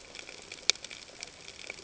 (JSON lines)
{"label": "ambient", "recorder": "HydroMoth"}